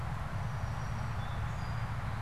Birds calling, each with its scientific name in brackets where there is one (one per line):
Song Sparrow (Melospiza melodia)